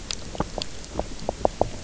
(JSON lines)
{"label": "biophony, knock croak", "recorder": "SoundTrap 300"}